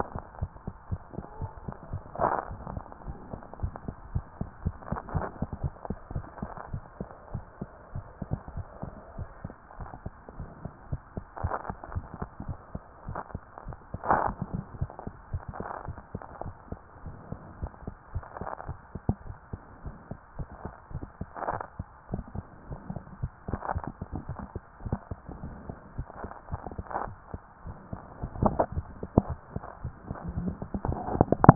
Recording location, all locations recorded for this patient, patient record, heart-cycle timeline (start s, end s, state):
tricuspid valve (TV)
aortic valve (AV)+pulmonary valve (PV)+tricuspid valve (TV)+mitral valve (MV)
#Age: Child
#Sex: Female
#Height: 114.0 cm
#Weight: 26.4 kg
#Pregnancy status: False
#Murmur: Absent
#Murmur locations: nan
#Most audible location: nan
#Systolic murmur timing: nan
#Systolic murmur shape: nan
#Systolic murmur grading: nan
#Systolic murmur pitch: nan
#Systolic murmur quality: nan
#Diastolic murmur timing: nan
#Diastolic murmur shape: nan
#Diastolic murmur grading: nan
#Diastolic murmur pitch: nan
#Diastolic murmur quality: nan
#Outcome: Normal
#Campaign: 2014 screening campaign
0.00	0.40	unannotated
0.40	0.50	S1
0.50	0.66	systole
0.66	0.74	S2
0.74	0.90	diastole
0.90	1.00	S1
1.00	1.14	systole
1.14	1.24	S2
1.24	1.40	diastole
1.40	1.50	S1
1.50	1.64	systole
1.64	1.74	S2
1.74	1.90	diastole
1.90	2.02	S1
2.02	2.20	systole
2.20	2.32	S2
2.32	2.50	diastole
2.50	2.60	S1
2.60	2.72	systole
2.72	2.84	S2
2.84	3.06	diastole
3.06	3.16	S1
3.16	3.32	systole
3.32	3.40	S2
3.40	3.60	diastole
3.60	3.72	S1
3.72	3.86	systole
3.86	3.96	S2
3.96	4.12	diastole
4.12	4.24	S1
4.24	4.40	systole
4.40	4.50	S2
4.50	4.64	diastole
4.64	4.76	S1
4.76	4.90	systole
4.90	4.98	S2
4.98	5.14	diastole
5.14	5.26	S1
5.26	5.40	systole
5.40	5.48	S2
5.48	5.62	diastole
5.62	5.74	S1
5.74	5.88	systole
5.88	5.98	S2
5.98	6.14	diastole
6.14	6.26	S1
6.26	6.40	systole
6.40	6.50	S2
6.50	6.72	diastole
6.72	6.82	S1
6.82	6.98	systole
6.98	7.08	S2
7.08	7.32	diastole
7.32	7.44	S1
7.44	7.60	systole
7.60	7.70	S2
7.70	7.94	diastole
7.94	8.04	S1
8.04	8.28	systole
8.28	8.38	S2
8.38	8.56	diastole
8.56	8.66	S1
8.66	8.82	systole
8.82	8.92	S2
8.92	9.16	diastole
9.16	9.28	S1
9.28	9.44	systole
9.44	9.54	S2
9.54	9.78	diastole
9.78	9.90	S1
9.90	10.04	systole
10.04	10.14	S2
10.14	10.38	diastole
10.38	10.48	S1
10.48	10.64	systole
10.64	10.72	S2
10.72	10.90	diastole
10.90	11.02	S1
11.02	11.16	systole
11.16	11.24	S2
11.24	11.42	diastole
11.42	11.54	S1
11.54	11.68	systole
11.68	11.78	S2
11.78	11.94	diastole
11.94	12.06	S1
12.06	12.20	systole
12.20	12.30	S2
12.30	12.46	diastole
12.46	12.58	S1
12.58	12.74	systole
12.74	12.82	S2
12.82	13.06	diastole
13.06	13.18	S1
13.18	13.32	systole
13.32	13.42	S2
13.42	13.66	diastole
13.66	31.55	unannotated